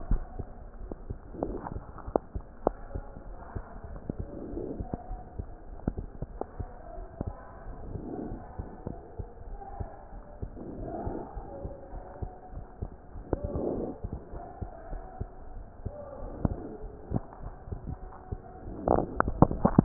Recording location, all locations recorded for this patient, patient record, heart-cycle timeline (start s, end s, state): aortic valve (AV)
aortic valve (AV)+pulmonary valve (PV)+tricuspid valve (TV)+mitral valve (MV)
#Age: Child
#Sex: Male
#Height: 113.0 cm
#Weight: 19.4 kg
#Pregnancy status: False
#Murmur: Absent
#Murmur locations: nan
#Most audible location: nan
#Systolic murmur timing: nan
#Systolic murmur shape: nan
#Systolic murmur grading: nan
#Systolic murmur pitch: nan
#Systolic murmur quality: nan
#Diastolic murmur timing: nan
#Diastolic murmur shape: nan
#Diastolic murmur grading: nan
#Diastolic murmur pitch: nan
#Diastolic murmur quality: nan
#Outcome: Normal
#Campaign: 2015 screening campaign
0.00	8.02	unannotated
8.02	8.24	diastole
8.24	8.40	S1
8.40	8.56	systole
8.56	8.68	S2
8.68	8.86	diastole
8.86	8.98	S1
8.98	9.18	systole
9.18	9.28	S2
9.28	9.50	diastole
9.50	9.60	S1
9.60	9.76	systole
9.76	9.90	S2
9.90	10.12	diastole
10.12	10.22	S1
10.22	10.42	systole
10.42	10.54	S2
10.54	10.78	diastole
10.78	10.90	S1
10.90	11.04	systole
11.04	11.16	S2
11.16	11.34	diastole
11.34	11.46	S1
11.46	11.62	systole
11.62	11.72	S2
11.72	11.92	diastole
11.92	12.04	S1
12.04	12.18	systole
12.18	12.32	S2
12.32	12.55	diastole
12.55	12.66	S1
12.66	12.80	systole
12.80	12.92	S2
12.92	13.14	diastole
13.14	13.24	S1
13.24	13.42	systole
13.42	13.52	S2
13.52	13.72	diastole
13.72	13.88	S1
13.88	14.00	systole
14.00	14.14	S2
14.14	14.30	diastole
14.30	14.42	S1
14.42	14.58	systole
14.58	14.70	S2
14.70	14.90	diastole
14.90	15.04	S1
15.04	15.18	systole
15.18	15.29	S2
15.29	15.54	diastole
15.54	15.66	S1
15.66	15.84	systole
15.84	15.94	S2
15.94	16.22	diastole
16.22	16.29	S1
16.29	19.84	unannotated